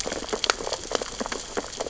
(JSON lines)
{"label": "biophony, sea urchins (Echinidae)", "recorder": "SoundTrap 600 or HydroMoth"}